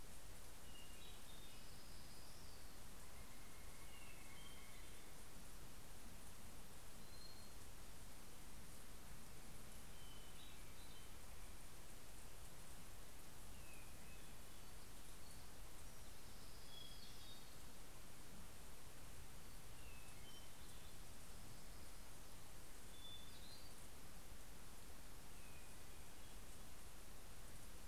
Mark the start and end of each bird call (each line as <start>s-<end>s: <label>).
0.0s-2.3s: Hermit Thrush (Catharus guttatus)
1.3s-3.3s: Orange-crowned Warbler (Leiothlypis celata)
2.6s-5.6s: Northern Flicker (Colaptes auratus)
3.4s-5.4s: Hermit Thrush (Catharus guttatus)
6.8s-7.8s: Hermit Thrush (Catharus guttatus)
8.9s-11.9s: Hermit Thrush (Catharus guttatus)
13.2s-14.9s: Hermit Thrush (Catharus guttatus)
15.6s-17.6s: Orange-crowned Warbler (Leiothlypis celata)
16.0s-18.4s: Hermit Thrush (Catharus guttatus)
19.3s-21.2s: Hermit Thrush (Catharus guttatus)
22.3s-26.2s: Hermit Thrush (Catharus guttatus)